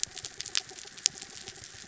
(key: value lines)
label: anthrophony, mechanical
recorder: SoundTrap 300